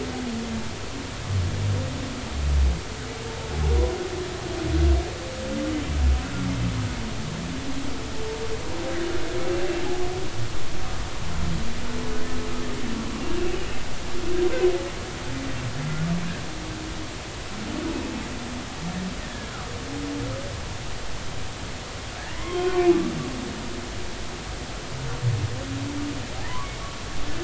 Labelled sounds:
13.5	13.8	humpback whale, 2.8 to 3.0 kHz
22.2	22.9	humpback whale, 0.96 to 3.3 kHz

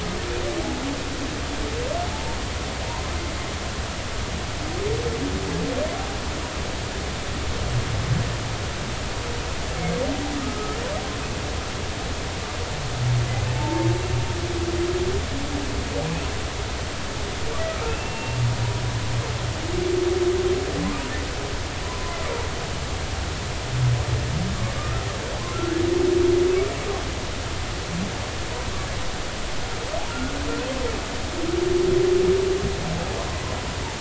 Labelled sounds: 13.5	13.9	humpback whale, 0.83 to 0.96 kHz
17.9	18.4	humpback whale, 2.5 to 2.8 kHz
21.8	22.2	humpback whale, 0.96 to 1.1 kHz
30.1	30.5	humpback whale, 1.3 to 1.7 kHz

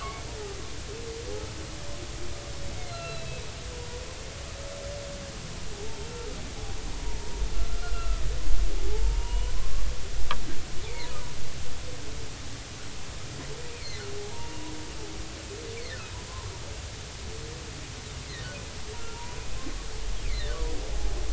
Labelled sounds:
2.9	4.0	humpback whale, 0.90 to 4.3 kHz
6.1	6.4	humpback whale, 1.2 to 1.4 kHz
7.0	7.4	humpback whale, 0.90 to 0.99 kHz
7.7	8.2	humpback whale, 1.2 to 1.5 kHz
8.8	9.5	humpback whale, 0.80 to 3.0 kHz
10.9	11.2	humpback whale, 0.90 to 1.1 kHz
13.7	14.7	humpback whale, 0.80 to 2.6 kHz
15.8	16.0	humpback whale, 1.7 to 2.4 kHz
19.1	19.4	humpback whale, 0.90 to 1.0 kHz

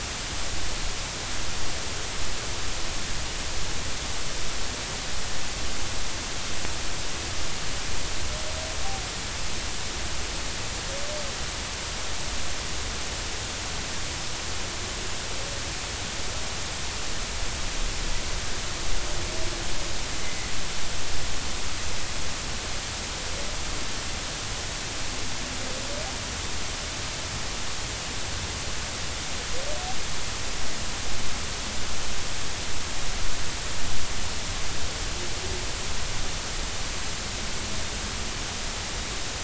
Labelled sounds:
20.2	20.5	humpback whale, 1.9 to 2.1 kHz

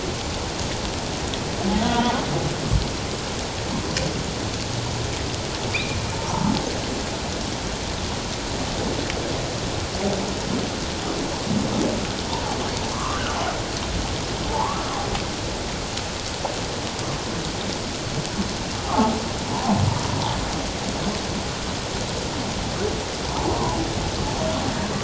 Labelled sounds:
1.7	2.3	humpback whale, 0.81 to 1.5 kHz
5.7	6.5	humpback whale, 0.81 to 2.6 kHz
12.9	13.2	humpback whale, 0.97 to 1.4 kHz
14.5	15.0	humpback whale, 0.81 to 1.4 kHz
18.8	19.2	humpback whale, 0.78 to 1.4 kHz

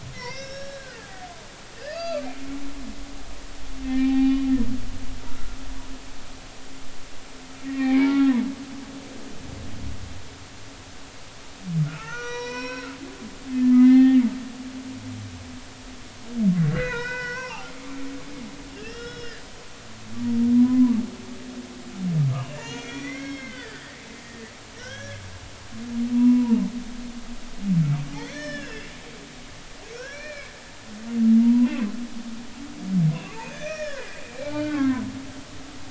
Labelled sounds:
0.1	1.1	humpback whale, 1.3 to 6.0 kHz
1.8	2.3	humpback whale, 1.1 to 2.8 kHz
2.8	4.5	humpback whale, 0.80 to 5.4 kHz
5.3	5.6	humpback whale, 1.2 to 1.4 kHz
7.6	8.3	humpback whale, 1.3 to 2.5 kHz
11.8	13.0	humpback whale, 0.86 to 6.0 kHz
13.5	14.2	humpback whale, 0.80 to 4.2 kHz
16.7	17.7	humpback whale, 0.80 to 5.7 kHz
18.7	19.4	humpback whale, 1.3 to 5.3 kHz
20.6	21.0	humpback whale, 0.90 to 1.1 kHz
22.3	24.0	humpback whale, 1.3 to 6.2 kHz
24.2	25.2	humpback whale, 1.7 to 3.4 kHz
25.8	26.6	humpback whale, 0.83 to 2.8 kHz
28.2	28.9	humpback whale, 1.5 to 6.0 kHz
29.9	30.5	humpback whale, 1.3 to 2.8 kHz
31.4	31.9	humpback whale, 0.90 to 2.8 kHz
33.4	35.0	humpback whale, 0.80 to 5.7 kHz

